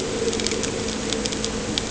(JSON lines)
{"label": "anthrophony, boat engine", "recorder": "HydroMoth"}